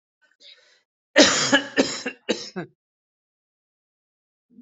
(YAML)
expert_labels:
- quality: ok
  cough_type: dry
  dyspnea: false
  wheezing: false
  stridor: false
  choking: false
  congestion: false
  nothing: true
  diagnosis: COVID-19
  severity: mild
age: 45
gender: male
respiratory_condition: true
fever_muscle_pain: false
status: symptomatic